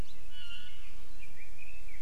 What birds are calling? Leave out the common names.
Drepanis coccinea, Leiothrix lutea